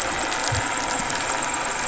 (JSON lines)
{"label": "anthrophony, boat engine", "recorder": "SoundTrap 500"}